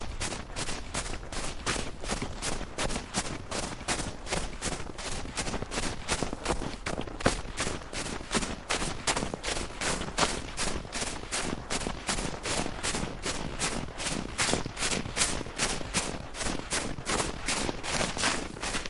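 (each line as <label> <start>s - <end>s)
A person is walking fast on snow at a steady pace. 0.0s - 18.9s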